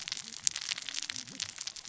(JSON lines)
{"label": "biophony, cascading saw", "recorder": "SoundTrap 600 or HydroMoth"}